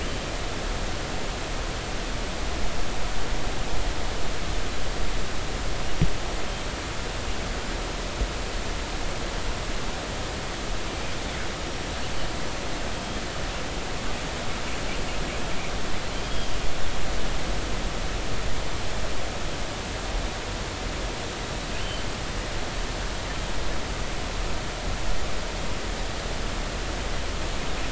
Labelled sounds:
10.9	11.1	killer whale, northern resident, 2.3 to 2.6 kHz
16.2	16.5	killer whale, northern resident, 3.1 to 3.4 kHz
21.8	22.1	killer whale, northern resident, G clan, GI subclan, call N23i, 2.9 to 3.1 kHz

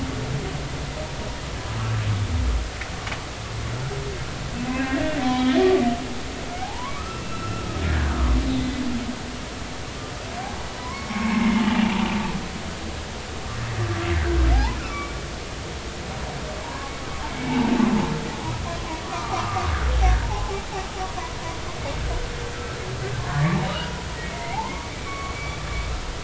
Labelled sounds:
4.7	5.6	humpback whale, 1.8 to 4.0 kHz
6.6	8.2	humpback whale, 0.80 to 2.8 kHz
8.5	8.8	humpback whale, 1.9 to 3.7 kHz
10.4	11.6	humpback whale, 0.80 to 2.3 kHz
13.9	14.1	humpback whale, 1.3 to 1.4 kHz
14.5	15.2	humpback whale, 0.80 to 2.4 kHz
16.6	16.9	humpback whale, 0.83 to 1.2 kHz
17.3	17.6	humpback whale, 2.1 to 2.3 kHz
19.0	19.7	humpback whale, 0.80 to 1.4 kHz
20.3	20.6	humpback whale, 0.80 to 0.93 kHz
23.3	25.6	humpback whale, 0.80 to 2.4 kHz

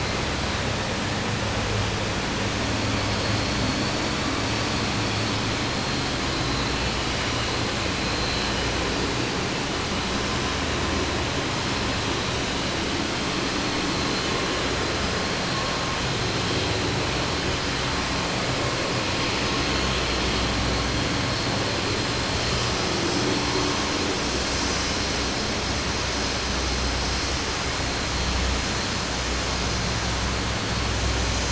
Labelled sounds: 3.1	4.0	vessel noise, 3.5 to 6.1 kHz

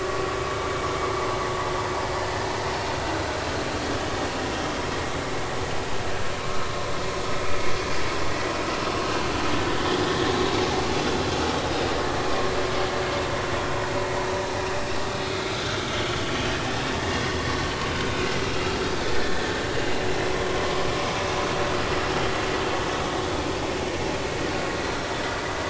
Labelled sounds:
9.8	10.0	vessel noise, 3.1 to 3.5 kHz
19.1	19.5	vessel noise, 1.6 to 1.9 kHz

